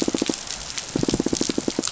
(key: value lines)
label: biophony, pulse
recorder: SoundTrap 500